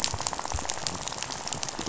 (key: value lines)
label: biophony, rattle
recorder: SoundTrap 500